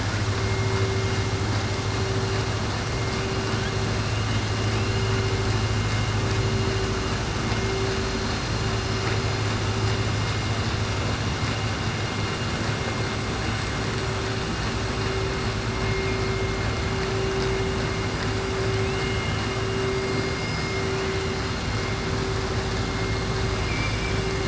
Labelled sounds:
18.7	19.4	killer whale, southern resident, 2.5 to 3.3 kHz
23.6	24.2	killer whale, southern resident, 1.9 to 3.2 kHz

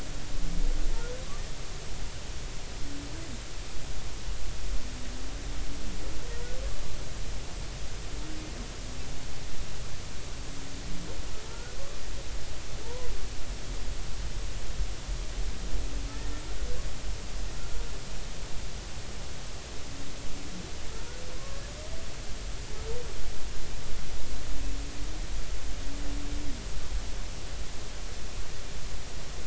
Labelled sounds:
12.8	13.1	humpback whale, 0.86 to 1.1 kHz
16.1	16.4	humpback whale, 1.7 to 1.9 kHz
21.4	21.6	humpback whale, 0.99 to 1.2 kHz

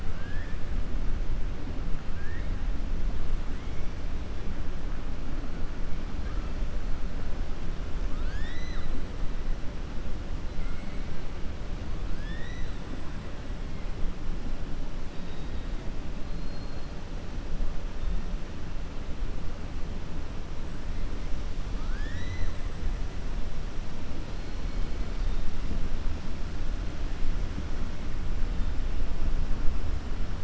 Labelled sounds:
8.1	8.9	killer whale, 1.2 to 7.8 kHz
10.5	11.0	killer whale, 1.3 to 2.8 kHz
12.1	12.8	killer whale, 1.7 to 6.0 kHz
16.2	16.9	killer whale, 4.1 to 4.7 kHz
21.7	22.6	killer whale, 1.3 to 7.6 kHz

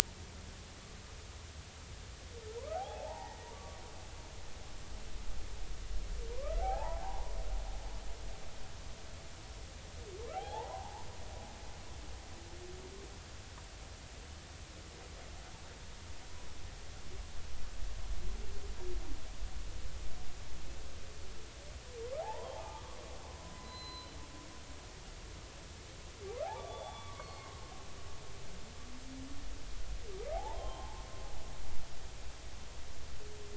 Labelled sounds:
2.6	3.8	humpback whale, 0.80 to 1.6 kHz
6.3	7.3	humpback whale, 0.80 to 1.4 kHz
10.3	11.0	humpback whale, 0.80 to 3.6 kHz
22.2	23.0	humpback whale, 0.80 to 1.2 kHz
23.5	24.1	humpback whale, 0.96 to 4.1 kHz
26.5	27.7	humpback whale, 0.80 to 3.5 kHz
30.3	31.1	humpback whale, 0.80 to 3.3 kHz

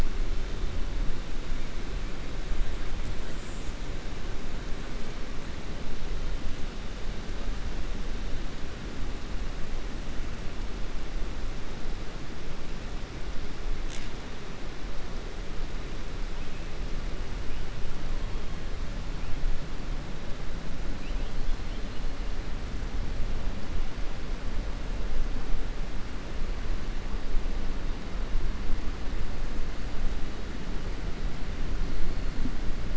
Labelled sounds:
20.9	21.3	killer whale, 2.4 to 4.0 kHz

